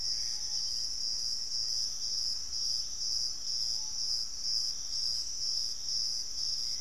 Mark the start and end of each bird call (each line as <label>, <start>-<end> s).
unidentified bird, 0.0-0.8 s
Black-faced Antthrush (Formicarius analis), 0.0-1.1 s
Gray Antbird (Cercomacra cinerascens), 0.0-1.3 s
Piratic Flycatcher (Legatus leucophaius), 0.0-6.8 s
Wing-barred Piprites (Piprites chloris), 0.1-2.2 s
Screaming Piha (Lipaugus vociferans), 3.7-6.8 s